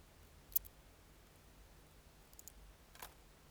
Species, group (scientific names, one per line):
Chorthippus acroleucus
Orthoptera